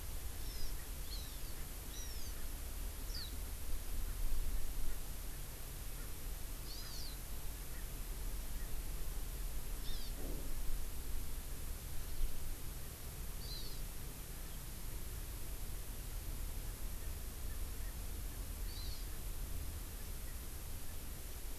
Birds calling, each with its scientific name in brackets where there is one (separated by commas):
Hawaii Amakihi (Chlorodrepanis virens), Eurasian Skylark (Alauda arvensis), Erckel's Francolin (Pternistis erckelii)